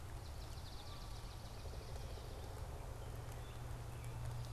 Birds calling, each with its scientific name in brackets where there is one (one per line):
Pileated Woodpecker (Dryocopus pileatus)
Swamp Sparrow (Melospiza georgiana)